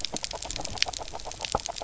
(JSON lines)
{"label": "biophony, grazing", "recorder": "SoundTrap 300"}